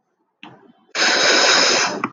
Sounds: Sneeze